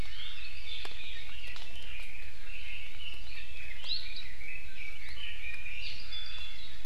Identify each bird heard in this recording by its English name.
Red-billed Leiothrix, Iiwi